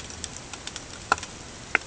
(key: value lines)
label: ambient
recorder: HydroMoth